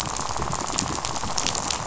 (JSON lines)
{"label": "biophony, rattle", "recorder": "SoundTrap 500"}